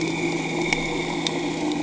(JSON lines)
{"label": "anthrophony, boat engine", "recorder": "HydroMoth"}